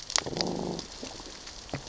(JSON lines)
{"label": "biophony, growl", "recorder": "SoundTrap 600 or HydroMoth"}